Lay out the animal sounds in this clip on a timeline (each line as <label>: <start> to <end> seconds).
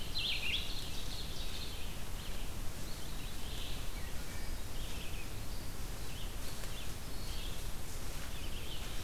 Ovenbird (Seiurus aurocapilla): 0.0 to 1.8 seconds
Red-eyed Vireo (Vireo olivaceus): 0.0 to 9.0 seconds